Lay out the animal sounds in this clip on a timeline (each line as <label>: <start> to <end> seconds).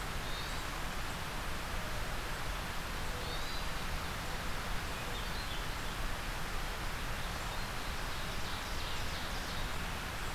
Yellow-bellied Sapsucker (Sphyrapicus varius): 0.0 to 0.8 seconds
Yellow-bellied Sapsucker (Sphyrapicus varius): 3.0 to 3.9 seconds
Hermit Thrush (Catharus guttatus): 4.6 to 5.6 seconds
Ovenbird (Seiurus aurocapilla): 7.4 to 9.6 seconds